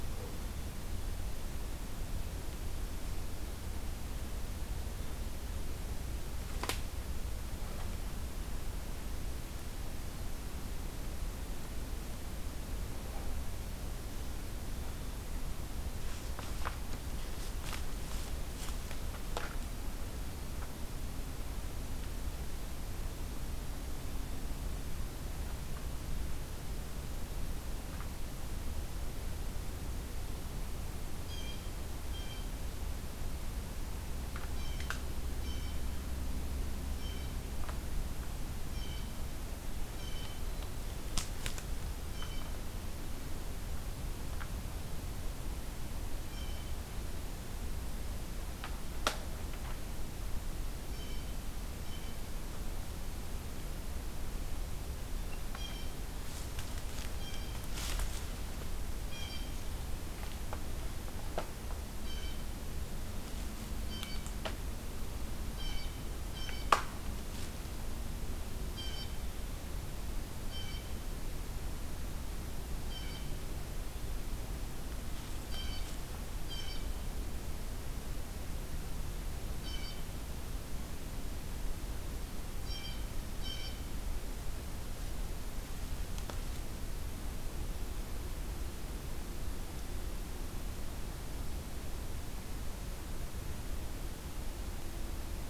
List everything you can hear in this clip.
Blue Jay